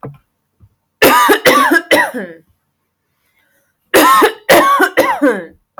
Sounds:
Cough